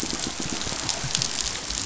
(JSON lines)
{"label": "biophony, pulse", "recorder": "SoundTrap 500"}